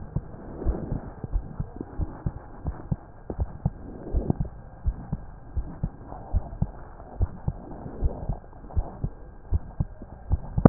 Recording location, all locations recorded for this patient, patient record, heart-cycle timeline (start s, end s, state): aortic valve (AV)
aortic valve (AV)+pulmonary valve (PV)+tricuspid valve (TV)+mitral valve (MV)
#Age: Child
#Sex: Male
#Height: 140.0 cm
#Weight: 39.2 kg
#Pregnancy status: False
#Murmur: Absent
#Murmur locations: nan
#Most audible location: nan
#Systolic murmur timing: nan
#Systolic murmur shape: nan
#Systolic murmur grading: nan
#Systolic murmur pitch: nan
#Systolic murmur quality: nan
#Diastolic murmur timing: nan
#Diastolic murmur shape: nan
#Diastolic murmur grading: nan
#Diastolic murmur pitch: nan
#Diastolic murmur quality: nan
#Outcome: Normal
#Campaign: 2015 screening campaign
0.00	0.62	unannotated
0.62	0.80	S1
0.80	0.90	systole
0.90	1.00	S2
1.00	1.32	diastole
1.32	1.46	S1
1.46	1.56	systole
1.56	1.68	S2
1.68	1.98	diastole
1.98	2.10	S1
2.10	2.22	systole
2.22	2.34	S2
2.34	2.66	diastole
2.66	2.76	S1
2.76	2.88	systole
2.88	2.98	S2
2.98	3.36	diastole
3.36	3.50	S1
3.50	3.64	systole
3.64	3.76	S2
3.76	4.12	diastole
4.12	4.28	S1
4.28	4.38	systole
4.38	4.50	S2
4.50	4.84	diastole
4.84	4.96	S1
4.96	5.10	systole
5.10	5.20	S2
5.20	5.54	diastole
5.54	5.68	S1
5.68	5.82	systole
5.82	5.92	S2
5.92	6.32	diastole
6.32	6.46	S1
6.46	6.60	systole
6.60	6.72	S2
6.72	7.18	diastole
7.18	7.30	S1
7.30	7.44	systole
7.44	7.56	S2
7.56	8.00	diastole
8.00	8.16	S1
8.16	8.26	systole
8.26	8.38	S2
8.38	8.76	diastole
8.76	8.90	S1
8.90	9.02	systole
9.02	9.12	S2
9.12	9.50	diastole
9.50	9.64	S1
9.64	9.76	systole
9.76	9.88	S2
9.88	10.28	diastole
10.28	10.44	S1
10.44	10.69	unannotated